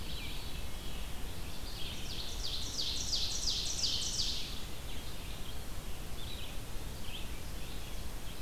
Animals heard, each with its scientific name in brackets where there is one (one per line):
Ovenbird (Seiurus aurocapilla)
Veery (Catharus fuscescens)
Red-eyed Vireo (Vireo olivaceus)